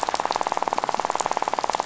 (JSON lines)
{"label": "biophony, rattle", "recorder": "SoundTrap 500"}